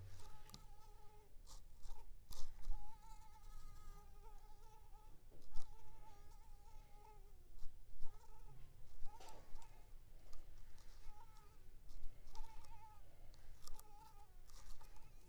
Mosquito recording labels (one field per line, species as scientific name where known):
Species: Culex pipiens complex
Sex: female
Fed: unfed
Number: one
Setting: cup